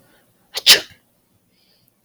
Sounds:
Sneeze